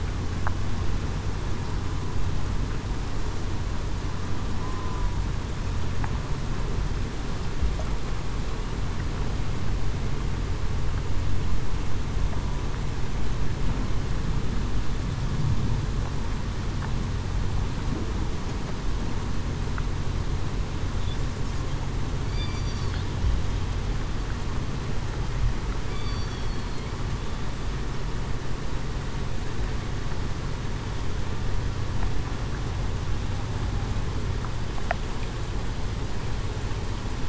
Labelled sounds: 4.6	5.1	killer whale, southern resident, 0.96 to 1.1 kHz
22.2	22.6	killer whale, southern resident, 2.2 to 2.4 kHz
26.0	26.3	killer whale, southern resident, 4.5 to 4.7 kHz

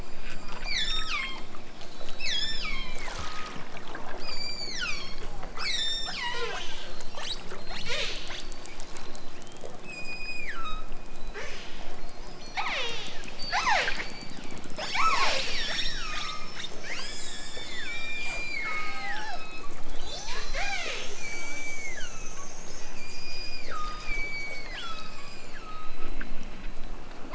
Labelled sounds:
0.0	1.6	killer whale, southern Alaska resident, 0.78 to 8.0 kHz
2.1	3.6	killer whale, southern Alaska resident, 0.69 to 8.0 kHz
4.2	8.8	killer whale, southern Alaska resident, 0.18 to 8.0 kHz
9.7	12.0	killer whale, southern Alaska resident, 0.32 to 8.0 kHz
12.5	14.4	killer whale, southern Alaska resident, 0.23 to 8.0 kHz
14.7	16.9	killer whale, southern Alaska resident, 0.23 to 8.0 kHz
17.9	22.5	killer whale, southern Alaska resident, 0.18 to 8.0 kHz
22.8	26.2	killer whale, southern Alaska resident, 0.92 to 8.0 kHz

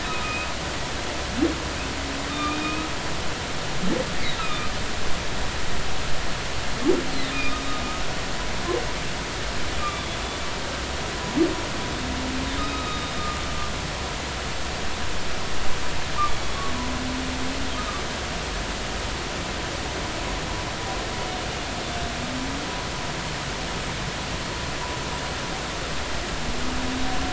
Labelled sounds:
0.1	0.5	humpback whale, 1.2 to 2.6 kHz
2.3	2.9	humpback whale, 1.1 to 3.8 kHz
4.2	4.7	humpback whale, 1.2 to 4.1 kHz
5.4	5.7	humpback whale, 2.3 to 2.7 kHz
7.3	7.6	humpback whale, 2.3 to 3.8 kHz
9.8	10.1	humpback whale, 1.1 to 2.5 kHz
12.6	13.3	humpback whale, 1.2 to 3.8 kHz

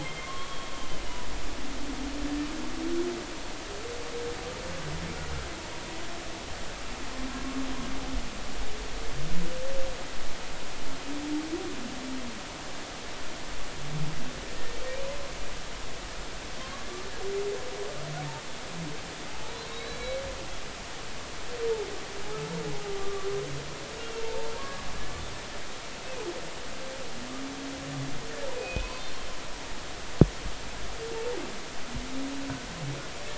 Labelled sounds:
0.0	1.0	humpback whale, 1.0 to 3.3 kHz
14.5	14.8	humpback whale, 1.8 to 1.9 kHz
19.7	20.2	humpback whale, 2.2 to 4.1 kHz
22.9	23.3	humpback whale, 1.0 to 1.2 kHz
24.0	24.8	humpback whale, 0.86 to 2.9 kHz
28.5	29.2	humpback whale, 2.4 to 4.3 kHz

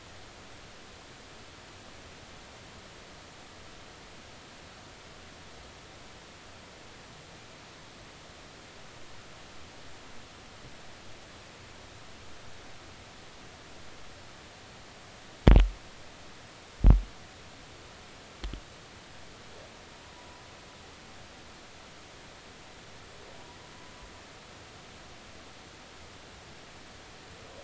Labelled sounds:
20.1	20.4	humpback whale, 0.93 to 1.0 kHz

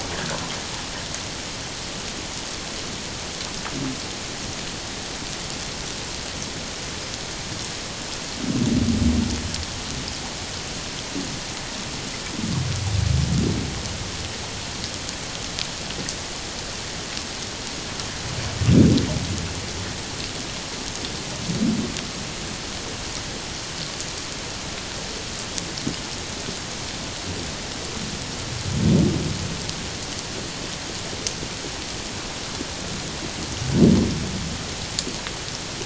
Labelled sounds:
0.1	0.4	water noise, 1.4 to 2.0 kHz

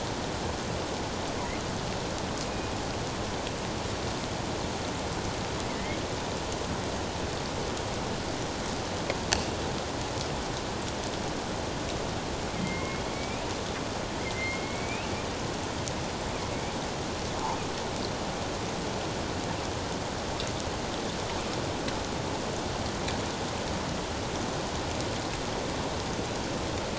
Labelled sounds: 5.7	6.0	killer whale, northern resident, A clan, AA subclan, A04 pod, 1.9 to 2.2 kHz
12.6	13.4	killer whale, northern resident, A clan, AA subclan, A04 pod, 2.0 to 2.6 kHz
14.2	15.1	killer whale, northern resident, A clan, AA subclan, A04 pod, 1.9 to 3.0 kHz

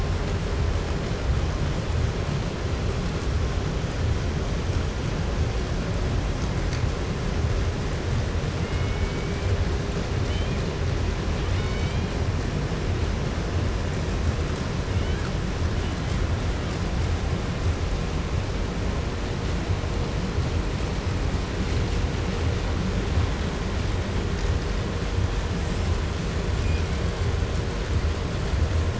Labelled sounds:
8.5	9.7	killer whale, Bigg's (transient), call T01, 1.4 to 3.7 kHz
10.1	10.8	killer whale, 1.4 to 4.3 kHz
11.3	12.3	killer whale, Bigg's (transient), call T01, 0.75 to 5.7 kHz
14.8	15.4	killer whale, 0.84 to 3.6 kHz
15.6	16.3	killer whale, 0.94 to 3.5 kHz
25.5	26.0	killer whale, 4.0 to 8.0 kHz
26.4	27.0	killer whale, 1.9 to 7.6 kHz

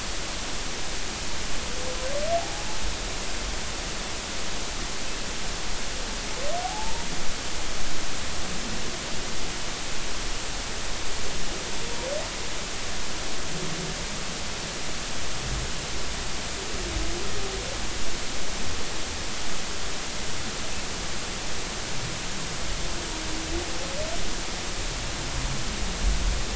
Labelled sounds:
2.4	2.6	humpback whale, 0.80 to 0.93 kHz
6.6	7.1	humpback whale, 0.80 to 0.96 kHz

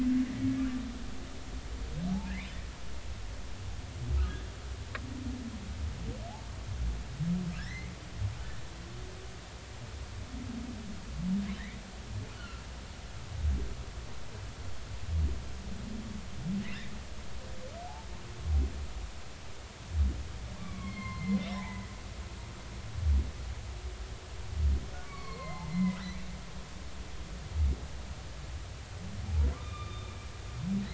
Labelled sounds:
7.6	7.9	humpback whale, 1.5 to 2.2 kHz
12.4	12.6	humpback whale, 1.3 to 1.5 kHz
20.6	21.9	humpback whale, 0.80 to 4.3 kHz
25.0	26.0	humpback whale, 0.99 to 4.5 kHz
29.5	30.1	humpback whale, 1.1 to 3.7 kHz

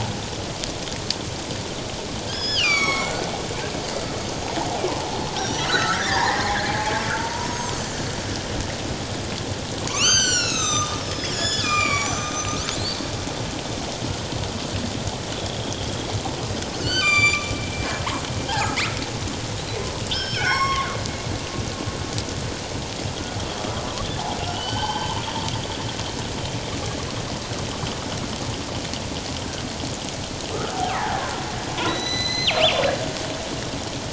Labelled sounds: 2.3	3.3	killer whale, northern resident, G clan, 1.0 to 7.9 kHz
5.4	6.4	killer whale, northern resident, G clan, 0.78 to 5.9 kHz
7.1	7.8	killer whale, northern resident, G clan, 0.88 to 1.1 kHz
9.9	12.6	killer whale, northern resident, G clan, 0.97 to 7.9 kHz
15.6	16.0	killer whale, northern resident, G clan, 3.1 to 3.4 kHz
16.8	17.5	killer whale, northern resident, G clan, 1.1 to 7.2 kHz
18.8	19.0	killer whale, northern resident, G clan, 1.9 to 2.7 kHz
20.1	20.9	killer whale, northern resident, G clan, 0.84 to 7.7 kHz
23.1	23.4	killer whale, northern resident, G clan, 1.3 to 1.5 kHz
24.5	25.2	killer whale, northern resident, G clan, 0.81 to 5.6 kHz
30.5	31.3	killer whale, northern resident, G clan, 0.78 to 2.1 kHz
31.9	32.6	killer whale, northern resident, G clan, 1.8 to 6.2 kHz

